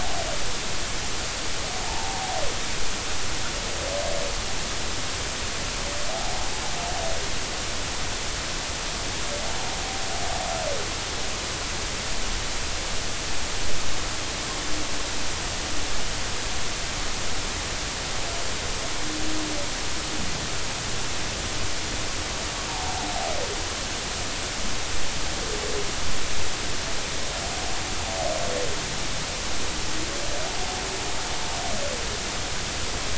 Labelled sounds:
1.8	2.2	humpback whale, 0.80 to 0.99 kHz
6.1	6.4	humpback whale, 0.80 to 0.90 kHz
22.8	23.1	humpback whale, 0.80 to 0.96 kHz

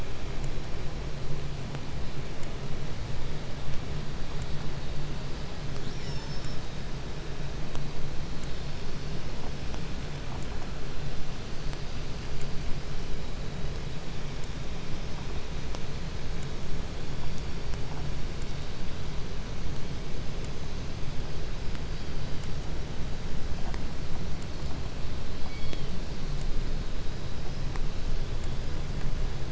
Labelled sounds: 5.7	6.7	killer whale, southern resident, call S36, 0.34 to 8.0 kHz
25.2	26.2	killer whale, southern resident, 1.3 to 5.0 kHz

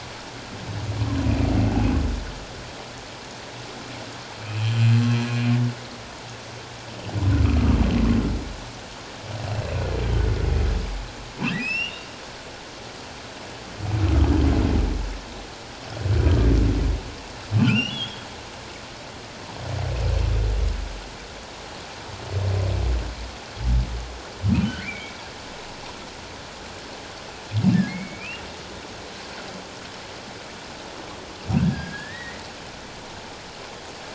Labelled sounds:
4.4	4.8	humpback whale, 2.3 to 3.2 kHz
7.4	7.8	humpback whale, 1.1 to 1.4 kHz
11.4	12.1	humpback whale, 1.6 to 5.8 kHz
17.6	18.3	humpback whale, 1.3 to 3.5 kHz
24.8	25.2	humpback whale, 1.8 to 2.5 kHz
27.9	28.4	humpback whale, 1.9 to 2.9 kHz
31.6	32.4	humpback whale, 1.3 to 2.1 kHz

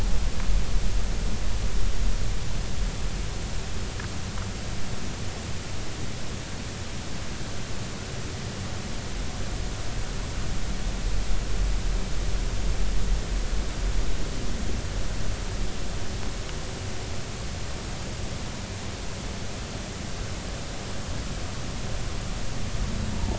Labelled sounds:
23.1	23.3	humpback whale, 0.86 to 0.99 kHz

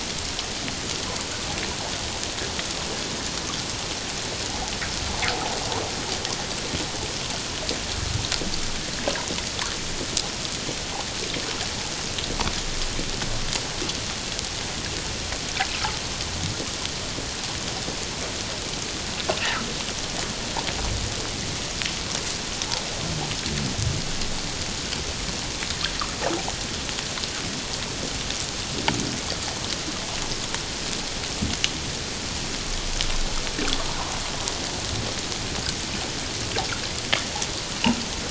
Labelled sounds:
19.4	19.7	water noise, 1.2 to 2.0 kHz
33.8	34.1	water noise, 0.78 to 1.1 kHz

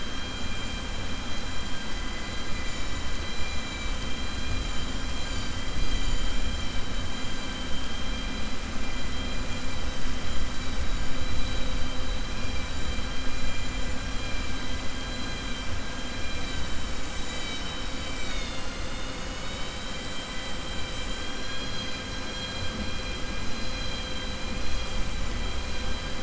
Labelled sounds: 15.0	15.6	vessel noise, 2.4 to 4.1 kHz
21.3	22.0	vessel noise, 1.6 to 5.7 kHz

